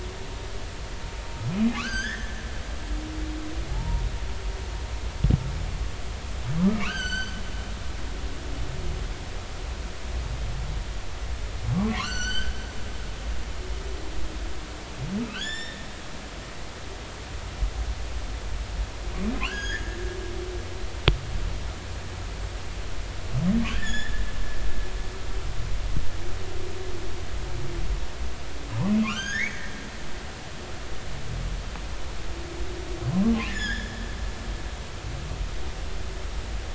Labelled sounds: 1.7	2.5	humpback whale, 0.96 to 6.5 kHz
3.7	4.0	humpback whale, 0.80 to 0.99 kHz
6.8	7.4	humpback whale, 0.99 to 7.8 kHz
12.0	12.6	humpback whale, 0.99 to 7.7 kHz
15.3	15.9	humpback whale, 1.3 to 7.4 kHz
19.4	20.0	humpback whale, 1.3 to 6.8 kHz
23.7	24.2	humpback whale, 1.5 to 7.1 kHz
29.0	29.7	humpback whale, 1.0 to 6.7 kHz
33.5	34.0	humpback whale, 1.5 to 5.4 kHz

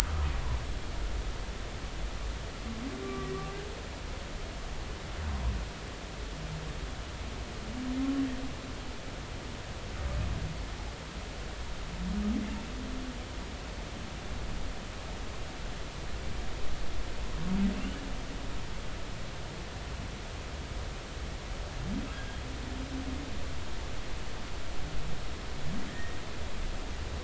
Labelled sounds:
0.0	0.3	humpback whale, 1.2 to 1.3 kHz
3.0	3.3	humpback whale, 1.1 to 1.2 kHz
17.7	18.0	humpback whale, 2.6 to 3.0 kHz
22.1	22.5	humpback whale, 1.6 to 3.4 kHz
25.9	26.2	humpback whale, 1.7 to 2.0 kHz

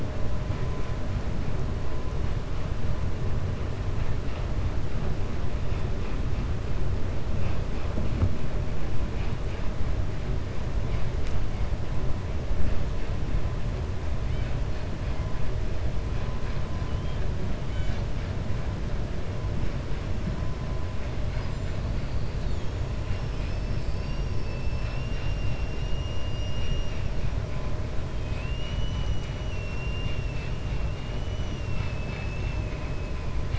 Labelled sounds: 28.5	29.4	killer whale, 5.0 to 7.6 kHz

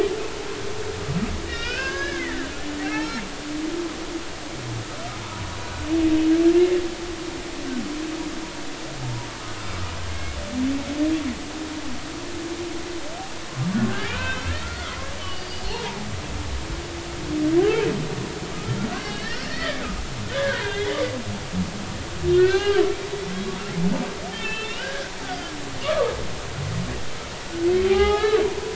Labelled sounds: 1.4	2.4	humpback whale, 1.0 to 5.5 kHz
2.8	3.2	humpback whale, 2.1 to 2.3 kHz
9.0	9.3	humpback whale, 0.86 to 1.0 kHz
10.1	10.4	humpback whale, 2.1 to 2.2 kHz
13.9	16.0	humpback whale, 0.80 to 4.9 kHz
17.6	17.9	humpback whale, 2.8 to 3.2 kHz
18.9	19.8	humpback whale, 1.4 to 4.6 kHz
20.3	21.0	humpback whale, 0.86 to 3.8 kHz
22.3	22.8	humpback whale, 0.80 to 4.1 kHz
24.3	25.5	humpback whale, 1.4 to 4.2 kHz
25.8	26.1	humpback whale, 1.1 to 1.3 kHz
27.9	28.7	humpback whale, 0.80 to 4.0 kHz

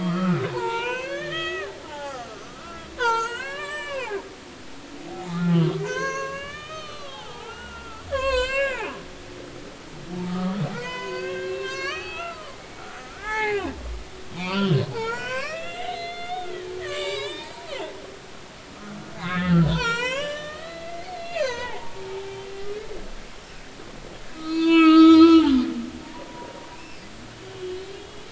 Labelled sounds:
0.0	4.2	humpback whale, 0.80 to 7.6 kHz
4.6	8.9	humpback whale, 0.80 to 7.9 kHz
10.3	13.7	humpback whale, 0.80 to 6.6 kHz
14.3	16.5	humpback whale, 0.80 to 5.7 kHz
16.8	17.5	humpback whale, 0.86 to 5.5 kHz
19.1	22.4	humpback whale, 0.80 to 8.0 kHz
24.4	25.4	humpback whale, 0.90 to 7.0 kHz
26.7	27.0	humpback whale, 2.4 to 2.8 kHz
27.5	28.2	humpback whale, 2.9 to 3.4 kHz

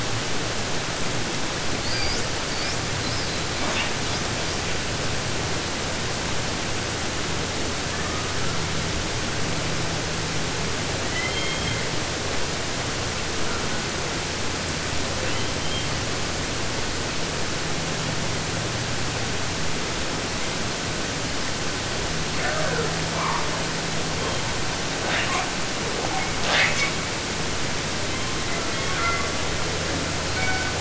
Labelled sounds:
1.7	4.7	killer whale, 0.08 to 8.0 kHz
11.0	12.2	killer whale, southern resident, 0.50 to 6.8 kHz
13.4	13.9	killer whale, southern resident, J pod, call S04, 0.37 to 2.4 kHz
15.1	16.0	killer whale, 0.32 to 3.5 kHz
24.1	24.6	killer whale, 0.24 to 3.6 kHz
25.0	25.5	killer whale, 0.09 to 8.0 kHz
25.8	27.0	killer whale, 0.08 to 8.0 kHz
28.0	29.7	killer whale, 0.20 to 4.6 kHz
30.2	30.7	killer whale, 0.39 to 4.9 kHz

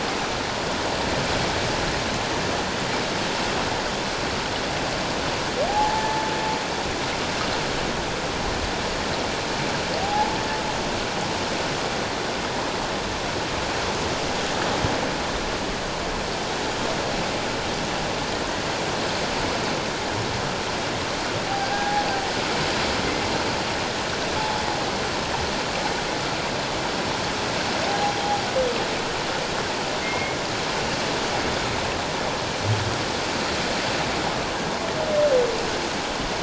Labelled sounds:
5.7	6.2	humpback whale, 0.78 to 0.94 kHz
10.0	10.4	humpback whale, 0.78 to 0.94 kHz
21.6	22.1	humpback whale, 0.78 to 1.7 kHz
30.0	30.4	humpback whale, 2.1 to 2.2 kHz

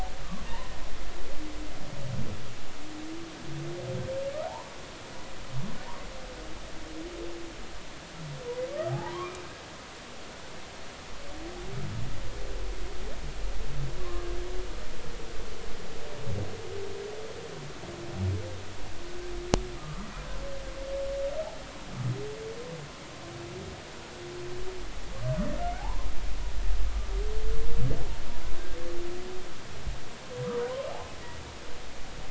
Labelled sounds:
8.9	9.4	humpback whale, 0.80 to 1.3 kHz
14.0	14.3	humpback whale, 0.99 to 1.2 kHz
19.8	20.1	humpback whale, 1.1 to 1.4 kHz
25.8	26.1	humpback whale, 0.80 to 1.1 kHz

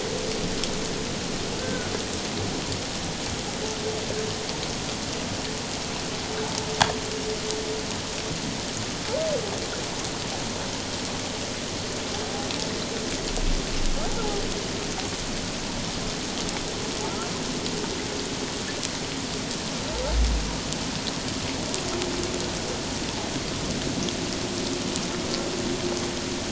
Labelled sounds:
1.6	1.9	humpback whale, 1.4 to 1.6 kHz

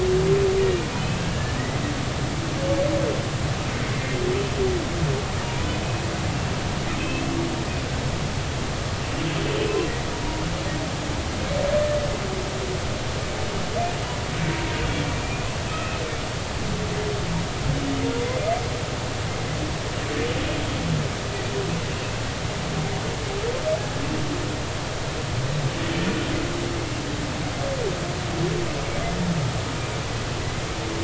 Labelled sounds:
0.9	1.6	humpback whale, 1.6 to 2.7 kHz
4.0	4.2	humpback whale, 2.0 to 2.2 kHz
5.4	5.7	humpback whale, 0.90 to 1.0 kHz
7.0	7.2	humpback whale, 2.5 to 2.8 kHz
15.2	16.0	humpback whale, 1.2 to 2.8 kHz
18.2	18.5	humpback whale, 2.0 to 2.2 kHz

